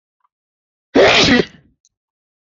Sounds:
Sneeze